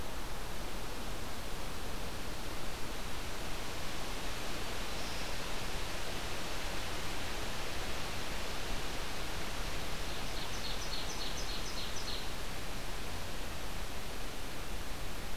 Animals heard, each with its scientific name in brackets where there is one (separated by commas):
Ovenbird (Seiurus aurocapilla), Black-throated Green Warbler (Setophaga virens)